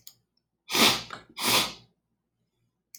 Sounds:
Sniff